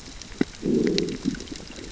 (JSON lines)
{"label": "biophony, growl", "recorder": "SoundTrap 600 or HydroMoth"}